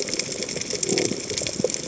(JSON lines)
{"label": "biophony", "recorder": "HydroMoth"}